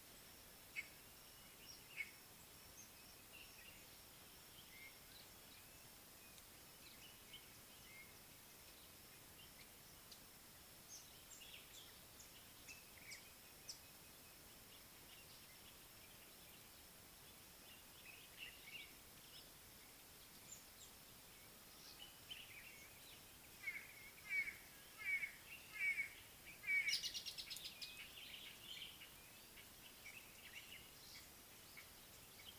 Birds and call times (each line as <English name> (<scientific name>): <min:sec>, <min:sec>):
White-bellied Go-away-bird (Corythaixoides leucogaster): 0:02.0, 0:25.2
Common Bulbul (Pycnonotus barbatus): 0:07.0, 0:13.2, 0:18.4, 0:22.4, 0:28.4
Speckled Mousebird (Colius striatus): 0:11.1, 0:27.4